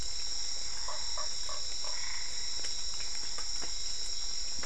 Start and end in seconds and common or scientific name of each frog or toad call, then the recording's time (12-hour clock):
0.7	2.1	Usina tree frog
1.7	2.7	Boana albopunctata
7:00pm